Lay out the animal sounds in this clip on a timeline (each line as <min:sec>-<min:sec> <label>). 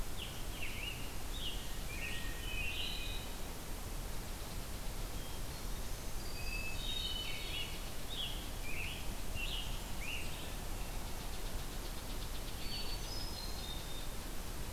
0:00.0-0:03.0 Scarlet Tanager (Piranga olivacea)
0:01.8-0:03.6 Hermit Thrush (Catharus guttatus)
0:05.9-0:07.9 Hermit Thrush (Catharus guttatus)
0:07.4-0:10.3 Scarlet Tanager (Piranga olivacea)
0:10.8-0:14.4 unknown mammal
0:12.8-0:14.4 Hermit Thrush (Catharus guttatus)